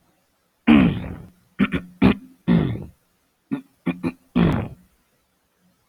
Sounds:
Throat clearing